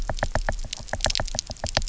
{"label": "biophony, knock", "recorder": "SoundTrap 300"}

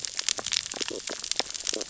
{"label": "biophony, stridulation", "recorder": "SoundTrap 600 or HydroMoth"}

